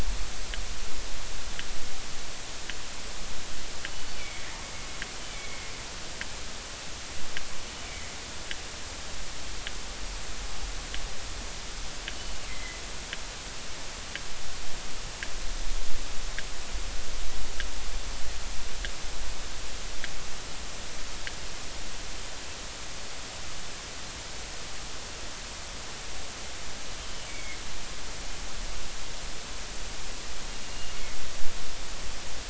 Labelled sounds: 4.1	4.4	killer whale, northern resident, G clan, GG subclan, call N23ii, 2.1 to 2.5 kHz
5.3	5.6	killer whale, northern resident, G clan, GG subclan, call N23ii, 2.1 to 2.4 kHz
7.8	8.1	killer whale, northern resident, G clan, GG subclan, call N23ii, 2.0 to 2.3 kHz
12.5	12.8	killer whale, northern resident, G clan, GG subclan, call N23ii, 1.9 to 2.2 kHz
27.0	27.6	killer whale, northern resident, G clan, GG subclan, call N23ii, 2.0 to 3.3 kHz
30.6	31.2	killer whale, northern resident, G clan, GG subclan, call N23ii, 2.1 to 2.9 kHz

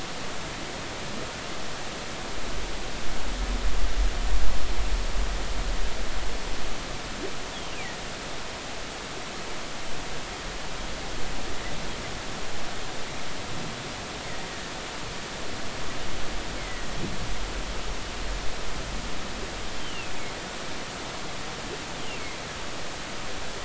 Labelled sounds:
16.6	16.9	humpback whale, 1.9 to 2.2 kHz
19.8	20.1	humpback whale, 2.5 to 3.2 kHz

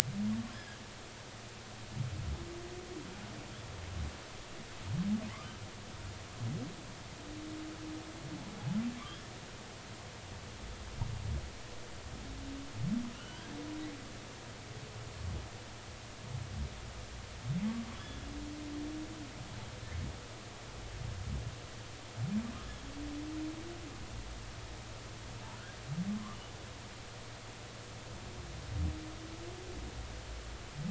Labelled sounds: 9.0	9.3	humpback whale, 1.5 to 3.4 kHz
13.1	13.6	humpback whale, 1.3 to 3.3 kHz
17.9	18.2	humpback whale, 3.3 to 3.5 kHz

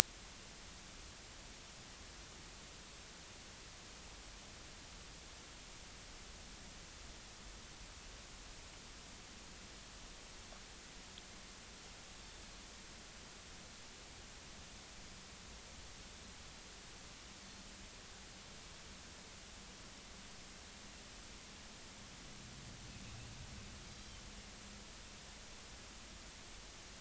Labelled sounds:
23.9	24.2	Pacific white-sided dolphin, 3.0 to 4.9 kHz

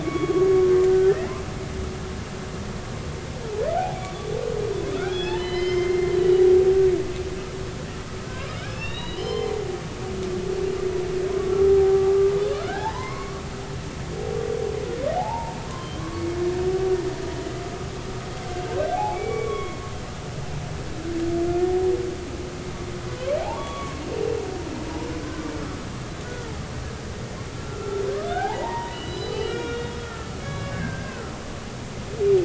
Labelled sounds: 0.0	1.4	humpback whale, 0.99 to 3.4 kHz
4.9	6.4	humpback whale, 0.83 to 5.3 kHz
8.5	9.5	humpback whale, 1.6 to 5.2 kHz
11.3	12.0	humpback whale, 0.80 to 1.2 kHz
12.5	13.4	humpback whale, 0.80 to 2.3 kHz
15.2	16.2	humpback whale, 0.80 to 1.2 kHz
18.9	19.8	humpback whale, 0.80 to 3.4 kHz
23.4	24.0	humpback whale, 0.80 to 3.4 kHz
26.2	26.5	humpback whale, 1.3 to 1.5 kHz
27.5	31.3	humpback whale, 0.80 to 5.3 kHz

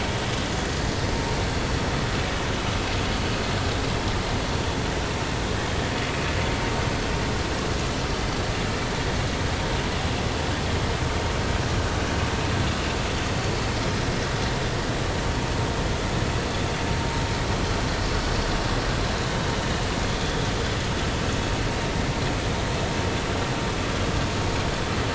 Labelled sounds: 20.2	20.5	vessel noise, 3.4 to 3.5 kHz

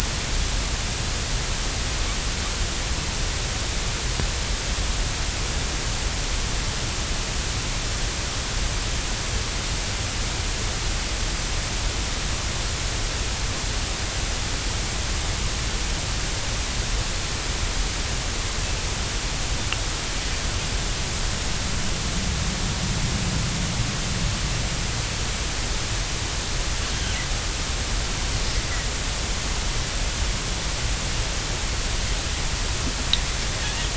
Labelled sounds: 26.9	27.2	Pacific white-sided dolphin, 2.8 to 3.3 kHz

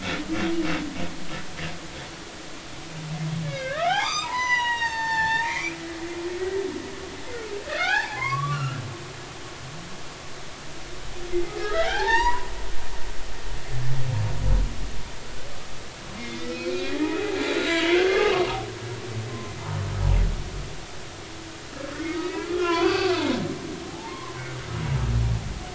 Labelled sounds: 3.4	5.8	humpback whale, 0.80 to 7.5 kHz
7.8	8.8	humpback whale, 0.80 to 2.9 kHz
11.5	12.5	humpback whale, 0.80 to 6.9 kHz
16.1	18.4	humpback whale, 0.80 to 4.1 kHz
19.3	19.6	humpback whale, 0.99 to 1.1 kHz
22.2	24.3	humpback whale, 0.80 to 5.0 kHz

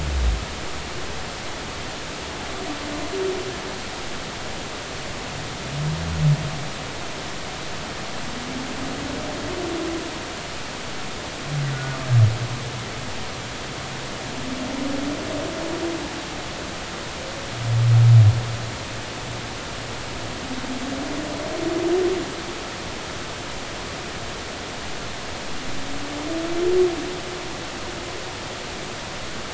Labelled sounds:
11.7	12.0	humpback whale, 1.4 to 1.5 kHz

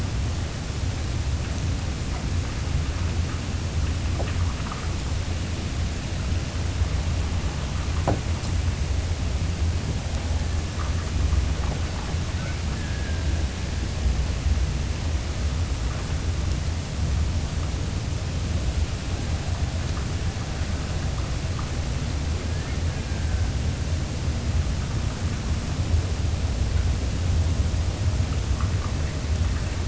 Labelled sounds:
12.2	13.7	killer whale, Bigg's (transient), Gulf of Alaska transient, 1.2 to 1.8 kHz
22.4	23.6	killer whale, Bigg's (transient), Gulf of Alaska transient, 1.4 to 1.9 kHz

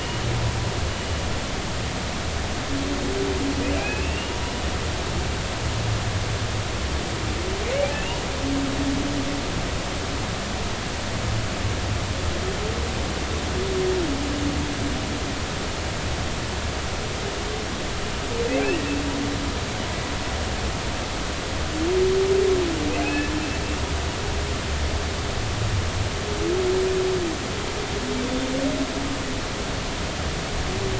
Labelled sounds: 3.8	4.4	humpback whale, 2.3 to 2.9 kHz
7.9	8.2	humpback whale, 2.5 to 2.9 kHz
23.0	23.3	humpback whale, 2.5 to 2.7 kHz
28.2	28.5	humpback whale, 3.4 to 3.6 kHz

